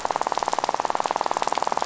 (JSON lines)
{"label": "biophony, rattle", "recorder": "SoundTrap 500"}